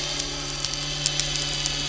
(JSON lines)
{"label": "anthrophony, boat engine", "recorder": "SoundTrap 300"}